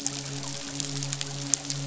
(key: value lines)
label: biophony, midshipman
recorder: SoundTrap 500